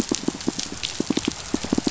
{"label": "biophony, pulse", "recorder": "SoundTrap 500"}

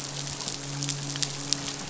{"label": "biophony, midshipman", "recorder": "SoundTrap 500"}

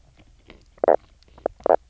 {"label": "biophony, knock croak", "recorder": "SoundTrap 300"}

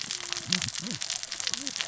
{"label": "biophony, cascading saw", "recorder": "SoundTrap 600 or HydroMoth"}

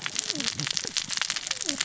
{"label": "biophony, cascading saw", "recorder": "SoundTrap 600 or HydroMoth"}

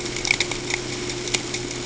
{"label": "ambient", "recorder": "HydroMoth"}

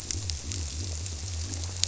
{"label": "biophony", "recorder": "SoundTrap 300"}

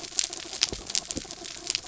{"label": "anthrophony, mechanical", "recorder": "SoundTrap 300"}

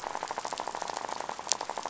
{"label": "biophony, rattle", "recorder": "SoundTrap 500"}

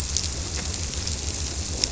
{"label": "biophony", "recorder": "SoundTrap 300"}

